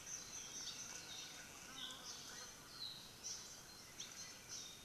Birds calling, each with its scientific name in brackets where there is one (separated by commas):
Hawaii Creeper (Loxops mana), Apapane (Himatione sanguinea)